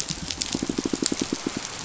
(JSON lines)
{"label": "biophony, pulse", "recorder": "SoundTrap 500"}